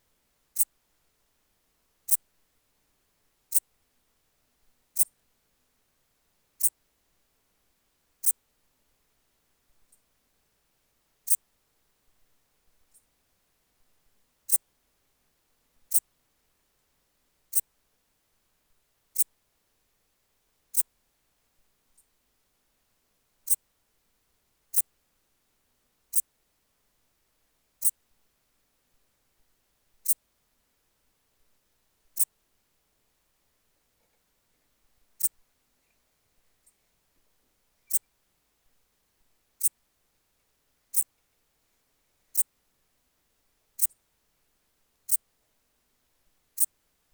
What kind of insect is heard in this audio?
orthopteran